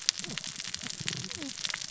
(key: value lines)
label: biophony, cascading saw
recorder: SoundTrap 600 or HydroMoth